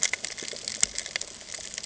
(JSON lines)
{"label": "ambient", "recorder": "HydroMoth"}